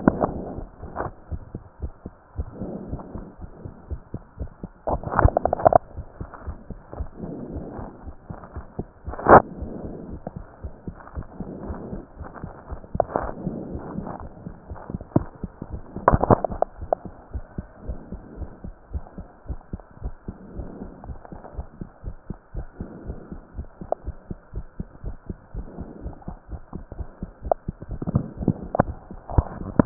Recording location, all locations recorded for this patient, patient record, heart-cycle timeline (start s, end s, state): tricuspid valve (TV)
aortic valve (AV)+pulmonary valve (PV)+tricuspid valve (TV)+mitral valve (MV)
#Age: Child
#Sex: Male
#Height: 138.0 cm
#Weight: 31.3 kg
#Pregnancy status: False
#Murmur: Absent
#Murmur locations: nan
#Most audible location: nan
#Systolic murmur timing: nan
#Systolic murmur shape: nan
#Systolic murmur grading: nan
#Systolic murmur pitch: nan
#Systolic murmur quality: nan
#Diastolic murmur timing: nan
#Diastolic murmur shape: nan
#Diastolic murmur grading: nan
#Diastolic murmur pitch: nan
#Diastolic murmur quality: nan
#Outcome: Normal
#Campaign: 2015 screening campaign
0.00	17.31	unannotated
17.31	17.44	S1
17.44	17.54	systole
17.54	17.68	S2
17.68	17.84	diastole
17.84	17.98	S1
17.98	18.08	systole
18.08	18.20	S2
18.20	18.36	diastole
18.36	18.50	S1
18.50	18.62	systole
18.62	18.74	S2
18.74	18.92	diastole
18.92	19.04	S1
19.04	19.15	systole
19.15	19.26	S2
19.26	19.46	diastole
19.46	19.60	S1
19.60	19.71	systole
19.71	19.84	S2
19.84	20.02	diastole
20.02	20.14	S1
20.14	20.25	systole
20.25	20.36	S2
20.36	20.54	diastole
20.54	20.68	S1
20.68	20.80	systole
20.80	20.90	S2
20.90	21.04	diastole
21.04	21.18	S1
21.18	21.31	systole
21.31	21.40	S2
21.40	21.56	diastole
21.56	21.66	S1
21.66	21.79	systole
21.79	21.90	S2
21.90	22.04	diastole
22.04	22.16	S1
22.16	22.28	systole
22.28	22.40	S2
22.40	22.53	diastole
22.53	22.68	S1
22.68	22.78	systole
22.78	22.90	S2
22.90	23.06	diastole
23.06	23.18	S1
23.18	23.30	systole
23.30	23.42	S2
23.42	23.56	diastole
23.56	23.66	S1
23.66	23.79	systole
23.79	23.90	S2
23.90	24.06	diastole
24.06	24.16	S1
24.16	24.26	systole
24.26	24.38	S2
24.38	24.54	diastole
24.54	24.66	S1
24.66	24.77	systole
24.77	24.90	S2
24.90	25.04	diastole
25.04	25.16	S1
25.16	25.27	systole
25.27	25.40	S2
25.40	25.54	diastole
25.54	25.68	S1
25.68	25.78	systole
25.78	25.88	S2
25.88	26.04	diastole
26.04	26.16	S1
26.16	26.25	systole
26.25	26.38	S2
26.38	26.49	diastole
26.49	26.62	S1
26.62	26.72	systole
26.72	26.82	S2
26.82	26.98	diastole
26.98	27.08	S1
27.08	27.18	systole
27.18	27.30	S2
27.30	29.86	unannotated